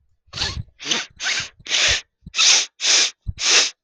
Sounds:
Sniff